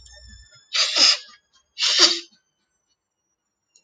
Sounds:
Sneeze